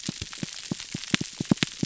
{"label": "biophony", "recorder": "SoundTrap 300"}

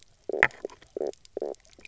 {"label": "biophony, knock croak", "recorder": "SoundTrap 300"}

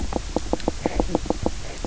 {"label": "biophony, knock croak", "recorder": "SoundTrap 300"}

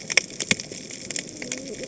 {"label": "biophony, cascading saw", "recorder": "HydroMoth"}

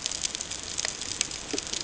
{"label": "ambient", "recorder": "HydroMoth"}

